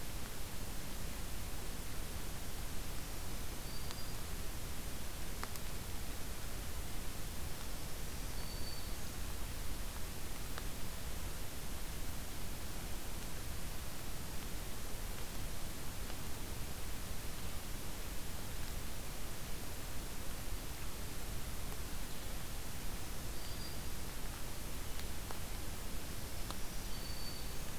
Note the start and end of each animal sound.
[2.91, 4.17] Black-throated Green Warbler (Setophaga virens)
[7.38, 9.19] Black-throated Green Warbler (Setophaga virens)
[22.86, 23.99] Black-throated Green Warbler (Setophaga virens)
[25.87, 27.79] Black-throated Green Warbler (Setophaga virens)

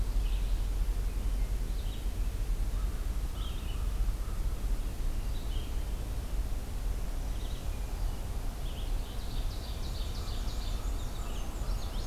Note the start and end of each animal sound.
[0.00, 12.06] Red-eyed Vireo (Vireo olivaceus)
[2.67, 4.88] American Crow (Corvus brachyrhynchos)
[7.54, 8.52] Hermit Thrush (Catharus guttatus)
[9.09, 10.79] Ovenbird (Seiurus aurocapilla)
[9.81, 11.91] Black-and-white Warbler (Mniotilta varia)

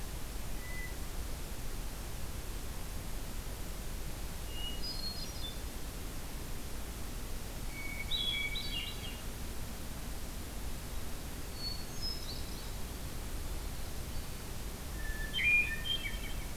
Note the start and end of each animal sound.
[0.43, 1.05] Hermit Thrush (Catharus guttatus)
[4.22, 5.62] Hermit Thrush (Catharus guttatus)
[7.56, 9.29] Hermit Thrush (Catharus guttatus)
[11.45, 12.81] Hermit Thrush (Catharus guttatus)
[14.91, 16.56] Hermit Thrush (Catharus guttatus)

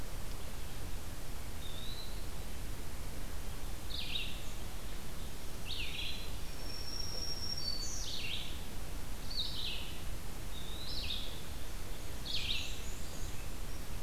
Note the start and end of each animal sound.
[0.00, 14.03] Red-eyed Vireo (Vireo olivaceus)
[1.44, 2.25] Eastern Wood-Pewee (Contopus virens)
[6.38, 8.21] Black-throated Green Warbler (Setophaga virens)
[11.94, 13.58] Black-and-white Warbler (Mniotilta varia)

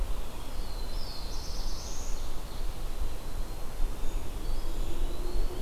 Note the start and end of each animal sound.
[0.39, 2.41] Black-throated Blue Warbler (Setophaga caerulescens)
[1.31, 2.94] Ovenbird (Seiurus aurocapilla)
[3.36, 4.32] Black-capped Chickadee (Poecile atricapillus)
[4.05, 5.61] Eastern Wood-Pewee (Contopus virens)

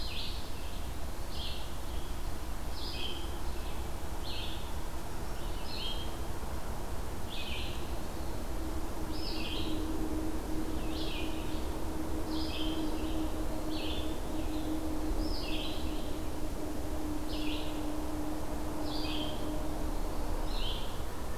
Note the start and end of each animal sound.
[0.00, 21.38] Red-eyed Vireo (Vireo olivaceus)
[12.47, 13.90] Eastern Wood-Pewee (Contopus virens)

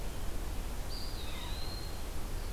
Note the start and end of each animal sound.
[0.72, 2.09] Eastern Wood-Pewee (Contopus virens)
[1.18, 1.56] Ovenbird (Seiurus aurocapilla)

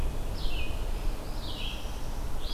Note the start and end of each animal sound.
[0.00, 2.53] Red-eyed Vireo (Vireo olivaceus)
[0.76, 2.28] Northern Parula (Setophaga americana)

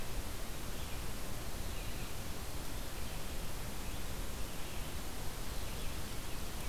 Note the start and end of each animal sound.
[0.36, 6.68] Red-eyed Vireo (Vireo olivaceus)

